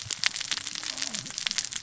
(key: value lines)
label: biophony, cascading saw
recorder: SoundTrap 600 or HydroMoth